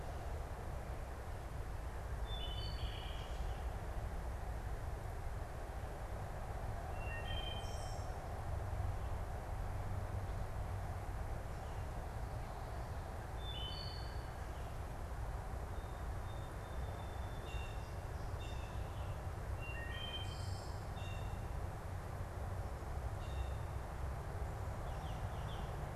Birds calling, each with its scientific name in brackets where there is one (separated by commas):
Wood Thrush (Hylocichla mustelina), Blue Jay (Cyanocitta cristata), Song Sparrow (Melospiza melodia), unidentified bird